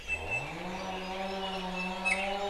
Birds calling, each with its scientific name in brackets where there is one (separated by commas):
Iiwi (Drepanis coccinea)